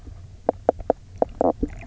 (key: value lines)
label: biophony, knock croak
recorder: SoundTrap 300